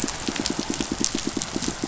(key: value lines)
label: biophony, pulse
recorder: SoundTrap 500